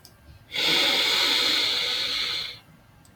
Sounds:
Sniff